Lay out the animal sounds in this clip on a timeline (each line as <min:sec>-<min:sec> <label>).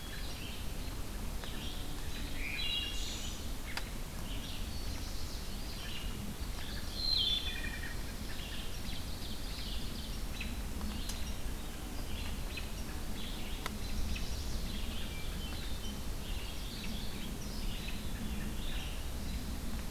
0:00.0-0:00.6 Wood Thrush (Hylocichla mustelina)
0:00.0-0:19.0 Red-eyed Vireo (Vireo olivaceus)
0:02.3-0:03.4 Wood Thrush (Hylocichla mustelina)
0:04.6-0:05.5 Chestnut-sided Warbler (Setophaga pensylvanica)
0:06.8-0:07.8 Wood Thrush (Hylocichla mustelina)
0:08.6-0:10.2 Ovenbird (Seiurus aurocapilla)
0:13.7-0:14.6 Chestnut-sided Warbler (Setophaga pensylvanica)
0:16.2-0:17.4 Mourning Warbler (Geothlypis philadelphia)